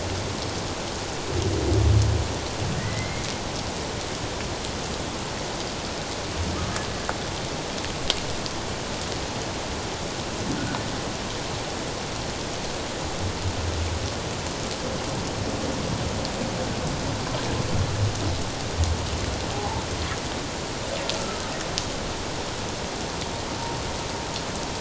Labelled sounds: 2.8	3.2	humpback whale, 1.8 to 2.2 kHz
19.5	19.8	humpback whale, 0.78 to 1.1 kHz
21.2	21.4	humpback whale, 1.2 to 1.4 kHz

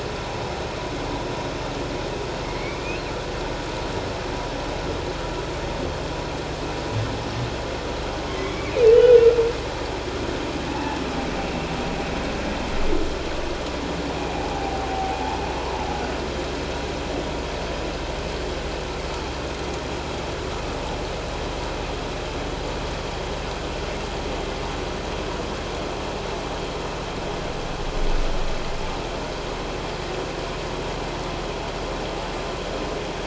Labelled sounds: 2.4	3.0	humpback whale, 2.0 to 2.8 kHz
8.3	9.2	humpback whale, 1.9 to 3.0 kHz
10.7	11.0	humpback whale, 0.78 to 0.94 kHz
14.5	15.2	humpback whale, 0.78 to 0.91 kHz

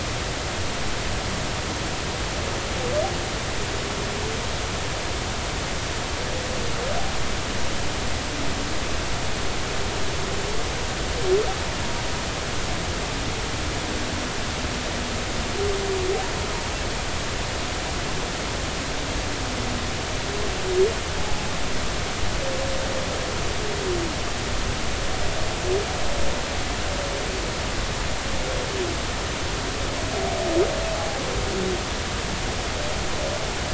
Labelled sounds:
21.2	21.4	humpback whale, 0.80 to 0.90 kHz

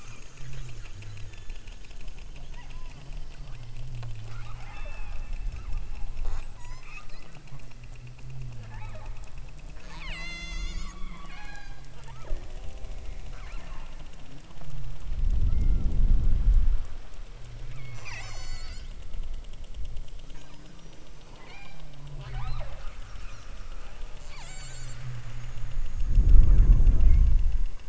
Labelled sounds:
1.1	2.2	killer whale, southern Alaska resident, 1.5 to 4.2 kHz
2.5	3.0	killer whale, southern Alaska resident, 0.62 to 2.4 kHz
4.2	5.3	killer whale, southern Alaska resident, 0.48 to 3.6 kHz
6.2	7.2	killer whale, southern Alaska resident, 0.62 to 8.0 kHz
8.5	9.2	killer whale, southern Alaska resident, 0.34 to 4.1 kHz
9.8	11.8	killer whale, southern Alaska resident, 0.50 to 8.0 kHz
13.3	14.0	killer whale, southern Alaska resident, 0.37 to 3.1 kHz
15.4	16.0	killer whale, southern Alaska resident, 1.1 to 5.1 kHz
17.8	18.9	killer whale, southern Alaska resident, 0.41 to 8.0 kHz
21.3	22.9	killer whale, southern Alaska resident, 0.37 to 6.0 kHz
24.1	25.1	killer whale, southern Alaska resident, 0.62 to 8.0 kHz

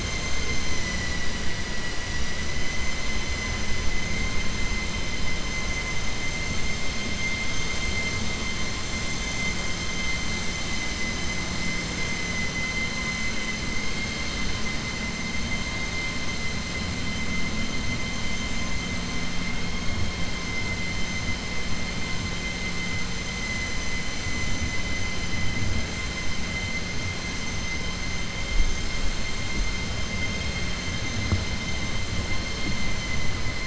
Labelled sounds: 0.7	1.3	vessel noise, 1.9 to 3.0 kHz

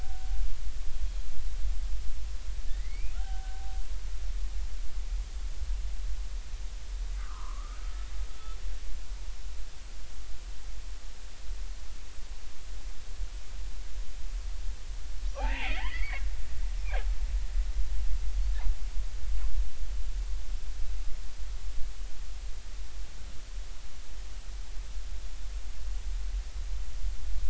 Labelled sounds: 0.0	0.4	killer whale, Bigg's (transient), 0.80 to 0.83 kHz
2.7	3.6	killer whale, Bigg's (transient), 0.80 to 2.6 kHz
7.2	7.8	killer whale, Bigg's (transient), 0.86 to 1.5 kHz
15.3	16.2	killer whale, Bigg's (transient), 0.80 to 2.8 kHz

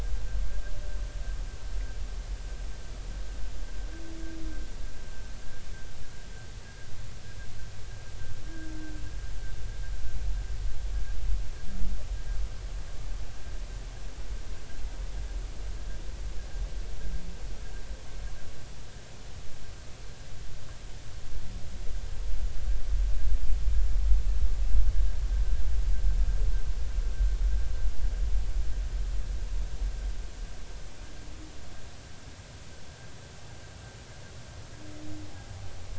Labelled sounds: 6.6	6.9	humpback whale, 1.6 to 1.7 kHz

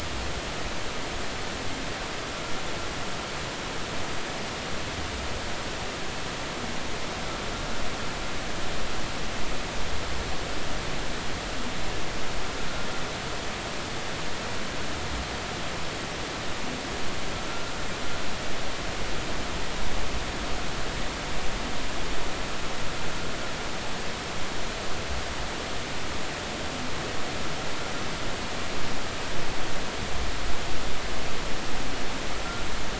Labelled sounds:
17.5	17.7	humpback whale, 1.3 to 1.5 kHz

